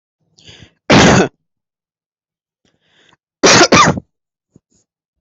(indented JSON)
{
  "expert_labels": [
    {
      "quality": "ok",
      "cough_type": "dry",
      "dyspnea": false,
      "wheezing": false,
      "stridor": false,
      "choking": false,
      "congestion": false,
      "nothing": true,
      "diagnosis": "lower respiratory tract infection",
      "severity": "mild"
    }
  ]
}